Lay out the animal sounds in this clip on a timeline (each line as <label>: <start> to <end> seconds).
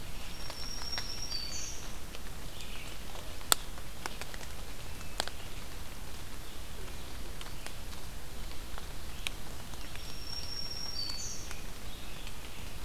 Red-eyed Vireo (Vireo olivaceus): 0.0 to 12.8 seconds
Black-throated Green Warbler (Setophaga virens): 0.2 to 2.0 seconds
Black-throated Green Warbler (Setophaga virens): 9.8 to 11.6 seconds